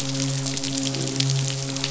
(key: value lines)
label: biophony
recorder: SoundTrap 500

label: biophony, midshipman
recorder: SoundTrap 500